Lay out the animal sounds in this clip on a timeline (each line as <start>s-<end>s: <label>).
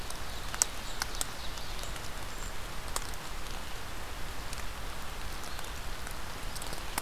0.0s-2.0s: Ovenbird (Seiurus aurocapilla)
2.2s-2.6s: Brown Creeper (Certhia americana)